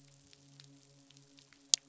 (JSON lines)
{"label": "biophony, midshipman", "recorder": "SoundTrap 500"}